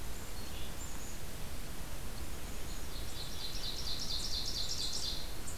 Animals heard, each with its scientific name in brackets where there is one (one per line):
Ovenbird (Seiurus aurocapilla)
Black-capped Chickadee (Poecile atricapillus)